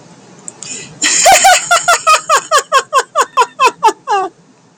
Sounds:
Laughter